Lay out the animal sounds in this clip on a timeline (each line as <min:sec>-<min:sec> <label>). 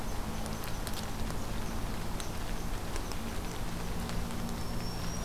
0:00.0-0:05.2 Red Squirrel (Tamiasciurus hudsonicus)
0:04.5-0:05.2 Black-throated Green Warbler (Setophaga virens)